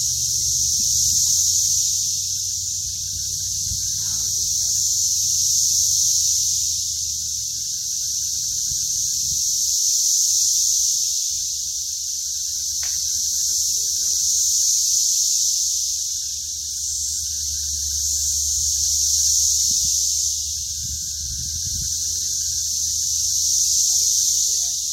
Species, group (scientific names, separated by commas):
Magicicada tredecassini, Cicadidae